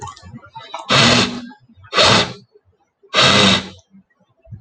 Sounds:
Sniff